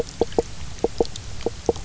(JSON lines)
{"label": "biophony, knock croak", "recorder": "SoundTrap 300"}